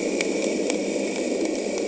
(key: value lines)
label: anthrophony, boat engine
recorder: HydroMoth